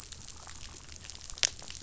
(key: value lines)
label: biophony, damselfish
recorder: SoundTrap 500